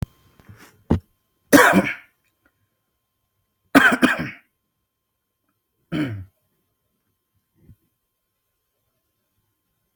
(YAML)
expert_labels:
- quality: good
  cough_type: dry
  dyspnea: false
  wheezing: false
  stridor: false
  choking: false
  congestion: false
  nothing: false
  diagnosis: upper respiratory tract infection
  severity: pseudocough/healthy cough
age: 37
gender: male
respiratory_condition: false
fever_muscle_pain: false
status: COVID-19